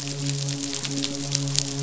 {"label": "biophony, midshipman", "recorder": "SoundTrap 500"}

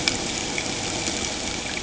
{"label": "ambient", "recorder": "HydroMoth"}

